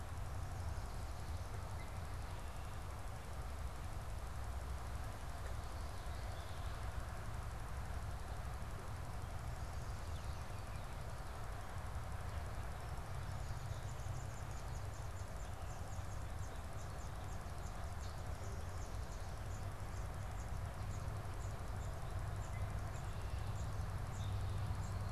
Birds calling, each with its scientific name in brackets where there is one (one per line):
unidentified bird